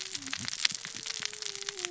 {"label": "biophony, cascading saw", "recorder": "SoundTrap 600 or HydroMoth"}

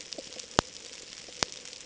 {"label": "ambient", "recorder": "HydroMoth"}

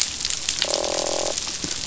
{"label": "biophony, croak", "recorder": "SoundTrap 500"}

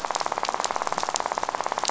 {"label": "biophony, rattle", "recorder": "SoundTrap 500"}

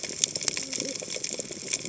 {"label": "biophony, cascading saw", "recorder": "HydroMoth"}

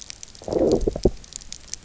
{"label": "biophony, low growl", "recorder": "SoundTrap 300"}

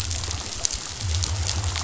{"label": "biophony", "recorder": "SoundTrap 500"}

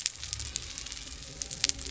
{"label": "anthrophony, boat engine", "recorder": "SoundTrap 300"}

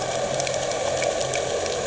{"label": "anthrophony, boat engine", "recorder": "HydroMoth"}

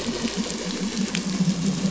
{"label": "anthrophony, boat engine", "recorder": "SoundTrap 500"}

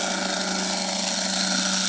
{"label": "anthrophony, boat engine", "recorder": "HydroMoth"}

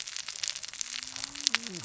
{"label": "biophony, cascading saw", "recorder": "SoundTrap 600 or HydroMoth"}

